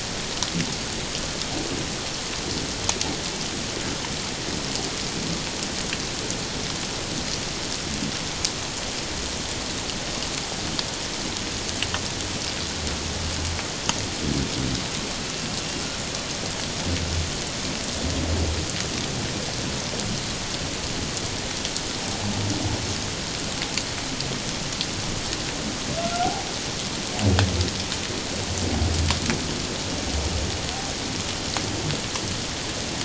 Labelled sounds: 26.0	26.5	humpback whale, 0.78 to 1.5 kHz

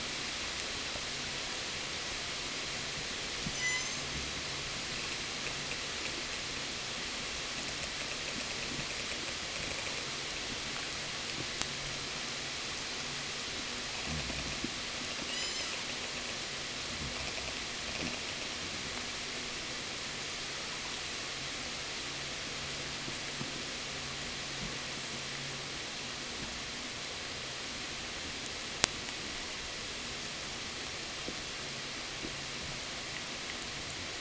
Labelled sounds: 2.9	4.3	killer whale, southern resident, 0 to 8.0 kHz
7.2	14.2	killer whale, 6.7 to 8.0 kHz
15.0	15.9	killer whale, southern resident, 0 to 8.0 kHz

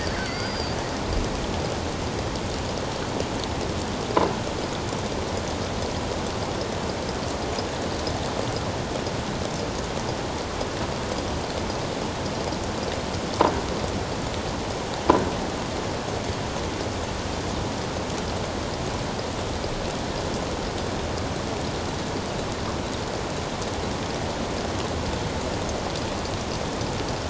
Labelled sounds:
0.0	0.8	killer whale, offshore, 4.4 to 4.9 kHz

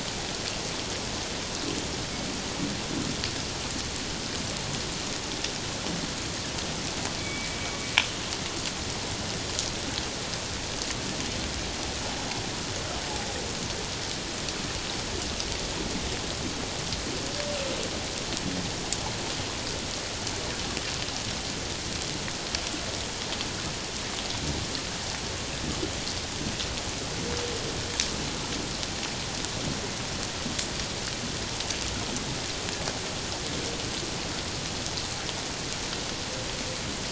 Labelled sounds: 7.2	7.5	killer whale, 2.2 to 2.3 kHz

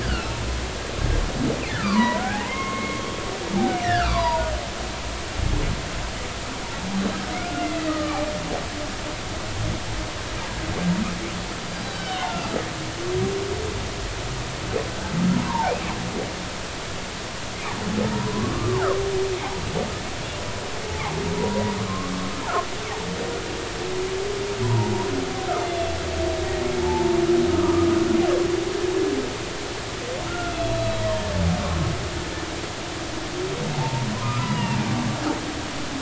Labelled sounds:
0.0	0.3	humpback whale, 1.2 to 1.8 kHz
1.7	3.2	humpback whale, 0.80 to 3.4 kHz
3.8	4.5	humpback whale, 0.90 to 2.1 kHz
7.4	8.2	humpback whale, 1.1 to 2.0 kHz
11.9	12.4	humpback whale, 1.4 to 3.8 kHz
15.3	15.7	humpback whale, 0.80 to 1.1 kHz
18.1	18.9	humpback whale, 0.80 to 1.2 kHz
20.9	22.1	humpback whale, 0.80 to 1.3 kHz
24.6	25.9	humpback whale, 0.80 to 3.6 kHz
26.8	27.2	humpback whale, 0.80 to 0.96 kHz
27.5	27.9	humpback whale, 1.1 to 1.3 kHz
30.2	31.1	humpback whale, 1.3 to 4.0 kHz
34.2	35.1	humpback whale, 0.80 to 2.9 kHz

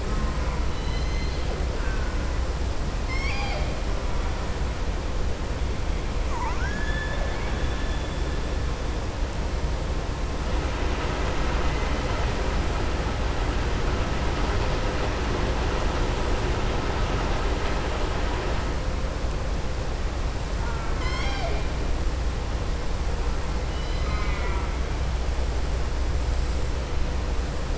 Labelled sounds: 0.6	1.4	killer whale, southern resident, 2.0 to 4.8 kHz
1.7	2.2	killer whale, southern resident, 1.1 to 2.6 kHz
3.0	3.7	killer whale, southern resident, 0.68 to 7.5 kHz
6.2	8.0	killer whale, southern resident, 0.89 to 3.6 kHz
20.6	21.6	killer whale, southern resident, 0.66 to 7.5 kHz

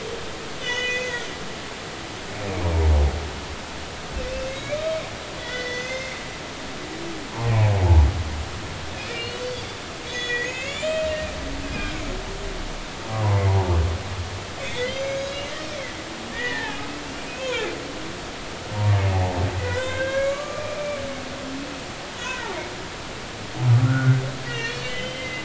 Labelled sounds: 0.6	1.2	humpback whale, 1.8 to 6.6 kHz
4.3	4.8	humpback whale, 2.0 to 6.7 kHz
5.4	6.2	humpback whale, 1.4 to 6.3 kHz
7.3	7.5	humpback whale, 0.80 to 1.1 kHz
9.0	12.1	humpback whale, 1.9 to 4.0 kHz
13.1	13.4	humpback whale, 0.80 to 1.2 kHz
14.6	16.8	humpback whale, 1.6 to 6.1 kHz
17.3	17.7	humpback whale, 2.2 to 2.7 kHz
19.6	22.5	humpback whale, 0.93 to 3.8 kHz
23.8	25.4	humpback whale, 1.3 to 4.4 kHz

